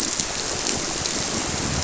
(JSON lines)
{"label": "biophony", "recorder": "SoundTrap 300"}